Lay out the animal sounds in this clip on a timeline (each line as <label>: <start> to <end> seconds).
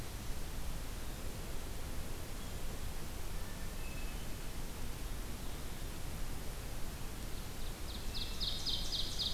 Hermit Thrush (Catharus guttatus): 3.2 to 4.4 seconds
Winter Wren (Troglodytes hiemalis): 6.6 to 9.3 seconds
Ovenbird (Seiurus aurocapilla): 7.5 to 9.3 seconds